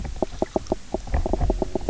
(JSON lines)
{"label": "biophony, knock croak", "recorder": "SoundTrap 300"}